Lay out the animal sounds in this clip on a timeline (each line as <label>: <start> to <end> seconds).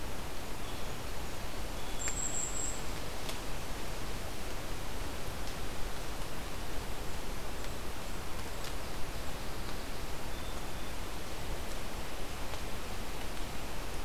Golden-crowned Kinglet (Regulus satrapa): 1.8 to 3.0 seconds
Song Sparrow (Melospiza melodia): 8.7 to 11.0 seconds